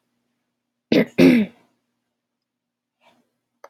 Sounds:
Throat clearing